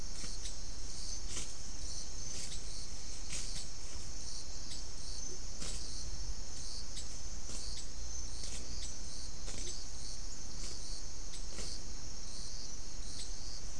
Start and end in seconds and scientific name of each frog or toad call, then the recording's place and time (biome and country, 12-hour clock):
5.2	5.5	Leptodactylus latrans
9.5	9.8	Leptodactylus latrans
Atlantic Forest, Brazil, 6:00pm